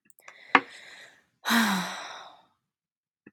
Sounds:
Sigh